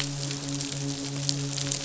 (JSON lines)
{"label": "biophony, midshipman", "recorder": "SoundTrap 500"}